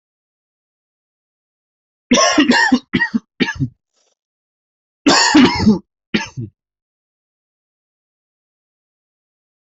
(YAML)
expert_labels:
- quality: ok
  cough_type: wet
  dyspnea: false
  wheezing: false
  stridor: false
  choking: false
  congestion: false
  nothing: true
  diagnosis: lower respiratory tract infection
  severity: mild
age: 36
gender: male
respiratory_condition: false
fever_muscle_pain: false
status: healthy